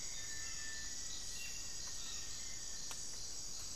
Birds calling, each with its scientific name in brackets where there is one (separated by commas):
Cinereous Tinamou (Crypturellus cinereus), Hauxwell's Thrush (Turdus hauxwelli)